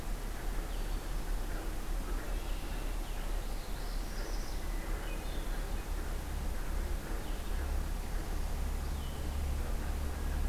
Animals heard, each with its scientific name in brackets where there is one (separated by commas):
Red-winged Blackbird (Agelaius phoeniceus), Northern Parula (Setophaga americana), Hermit Thrush (Catharus guttatus), Blue-headed Vireo (Vireo solitarius)